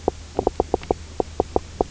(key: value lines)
label: biophony, knock croak
recorder: SoundTrap 300